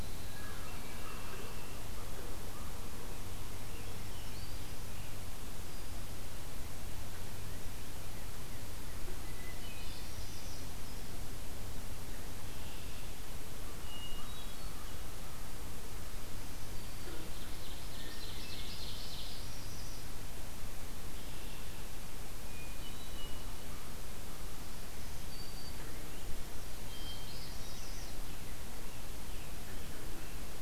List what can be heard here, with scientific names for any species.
Catharus guttatus, Agelaius phoeniceus, Corvus brachyrhynchos, Piranga olivacea, Setophaga virens, Cardinalis cardinalis, Setophaga americana, Seiurus aurocapilla